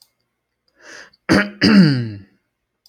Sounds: Throat clearing